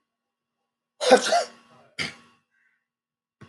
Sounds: Sneeze